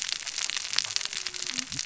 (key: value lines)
label: biophony, cascading saw
recorder: SoundTrap 600 or HydroMoth